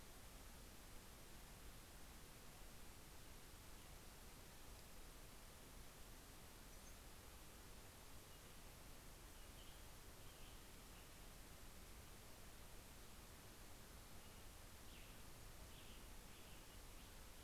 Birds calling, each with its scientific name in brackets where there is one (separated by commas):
Western Tanager (Piranga ludoviciana), Brown-headed Cowbird (Molothrus ater)